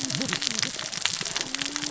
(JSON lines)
{"label": "biophony, cascading saw", "recorder": "SoundTrap 600 or HydroMoth"}